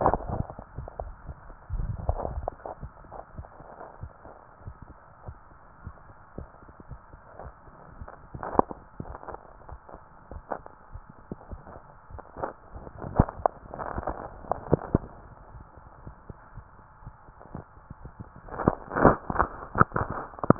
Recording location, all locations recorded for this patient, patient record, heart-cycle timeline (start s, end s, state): tricuspid valve (TV)
pulmonary valve (PV)+tricuspid valve (TV)
#Age: Child
#Sex: Male
#Height: 161.0 cm
#Weight: 68.4 kg
#Pregnancy status: False
#Murmur: Absent
#Murmur locations: nan
#Most audible location: nan
#Systolic murmur timing: nan
#Systolic murmur shape: nan
#Systolic murmur grading: nan
#Systolic murmur pitch: nan
#Systolic murmur quality: nan
#Diastolic murmur timing: nan
#Diastolic murmur shape: nan
#Diastolic murmur grading: nan
#Diastolic murmur pitch: nan
#Diastolic murmur quality: nan
#Outcome: Normal
#Campaign: 2015 screening campaign
0.00	5.18	unannotated
5.18	5.38	S1
5.38	5.75	systole
5.75	5.96	S2
5.96	6.32	diastole
6.32	6.49	S1
6.49	6.86	systole
6.86	7.02	S2
7.02	7.37	diastole
7.37	7.54	S1
7.54	7.94	systole
7.94	8.09	S2
8.09	8.35	diastole
8.35	8.50	S1
8.50	9.00	systole
9.00	9.12	S2
9.12	9.64	diastole
9.64	9.80	S1
9.80	10.27	systole
10.27	10.43	S2
10.43	10.90	diastole
10.90	11.01	S1
11.01	11.46	systole
11.46	11.59	S2
11.59	12.08	diastole
12.08	12.22	S1
12.22	12.70	systole
12.70	12.82	S2
12.82	20.59	unannotated